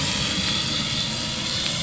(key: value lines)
label: anthrophony, boat engine
recorder: SoundTrap 500